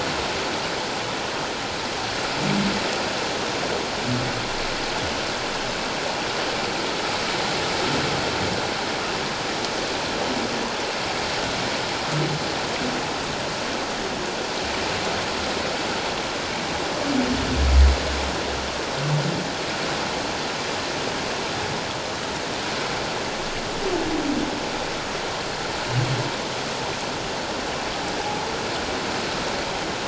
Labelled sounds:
28.2	28.5	humpback whale, 0.78 to 0.91 kHz

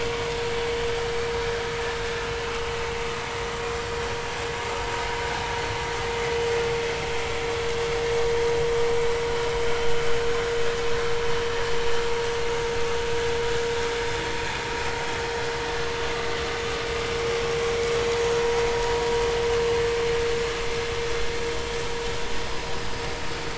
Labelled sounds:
14.3	14.6	vessel noise, 2.4 to 2.5 kHz

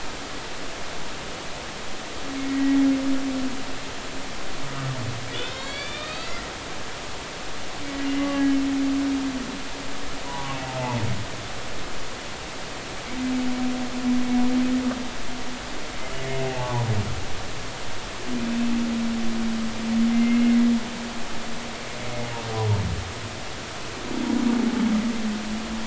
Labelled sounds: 2.5	2.8	humpback whale, 1.9 to 2.0 kHz
5.3	6.5	humpback whale, 1.2 to 4.7 kHz
8.1	8.4	humpback whale, 2.0 to 2.1 kHz
10.3	10.5	humpback whale, 0.93 to 1.0 kHz
16.4	16.9	humpback whale, 0.80 to 1.2 kHz
20.1	20.6	humpback whale, 1.9 to 2.2 kHz

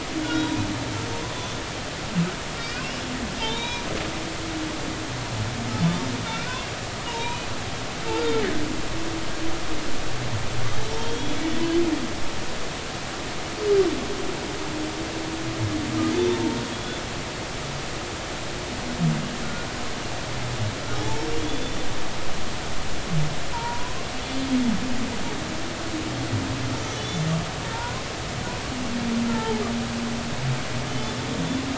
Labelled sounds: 0.2	0.6	humpback whale, 1.3 to 3.9 kHz
2.6	2.8	humpback whale, 2.2 to 2.6 kHz
3.4	3.8	humpback whale, 0.83 to 4.0 kHz
6.3	7.5	humpback whale, 0.86 to 2.6 kHz
11.0	11.4	humpback whale, 3.1 to 3.5 kHz
16.1	17.0	humpback whale, 0.86 to 3.7 kHz
21.0	21.8	humpback whale, 0.80 to 3.6 kHz
23.5	24.5	humpback whale, 0.86 to 3.5 kHz
26.8	27.3	humpback whale, 3.4 to 6.2 kHz
27.7	28.0	humpback whale, 1.3 to 1.5 kHz
30.3	30.6	humpback whale, 0.80 to 0.93 kHz

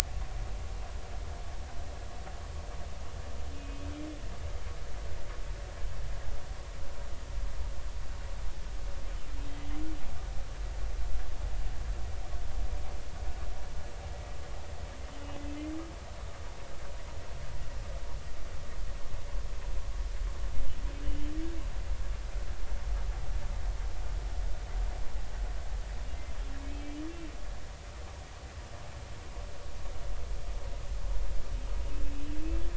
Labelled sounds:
3.5	3.8	humpback whale, 2.5 to 2.6 kHz
21.0	21.3	humpback whale, 2.8 to 3.0 kHz
26.6	27.0	humpback whale, 2.5 to 3.3 kHz

